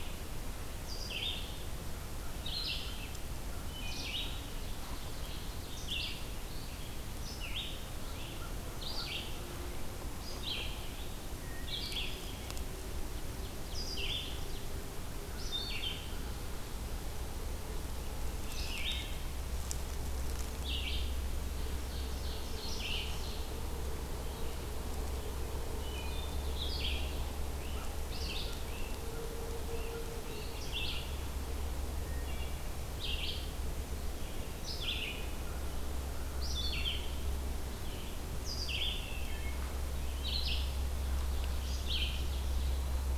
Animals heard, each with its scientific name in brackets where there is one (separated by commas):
Great Crested Flycatcher (Myiarchus crinitus), Wood Thrush (Hylocichla mustelina), Red-eyed Vireo (Vireo olivaceus), Ovenbird (Seiurus aurocapilla)